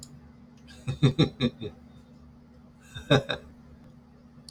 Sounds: Laughter